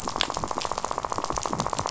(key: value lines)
label: biophony, rattle
recorder: SoundTrap 500